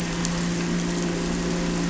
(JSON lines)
{"label": "anthrophony, boat engine", "recorder": "SoundTrap 300"}